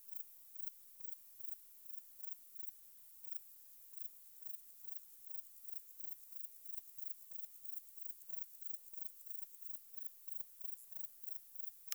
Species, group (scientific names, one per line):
Platycleis albopunctata
Orthoptera